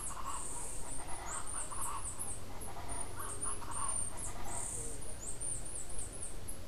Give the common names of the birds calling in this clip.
Chestnut-capped Brushfinch